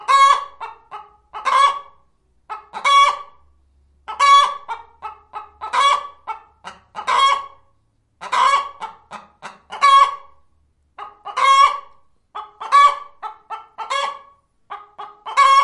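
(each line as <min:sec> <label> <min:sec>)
0:00.0 A chicken cackles loudly and repeatedly. 0:15.6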